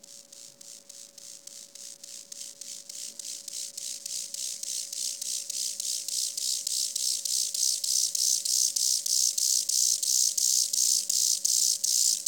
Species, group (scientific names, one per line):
Chorthippus eisentrauti
Orthoptera